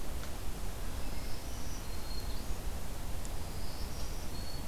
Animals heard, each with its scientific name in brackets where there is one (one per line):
Black-throated Green Warbler (Setophaga virens)